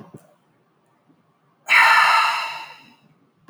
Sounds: Sigh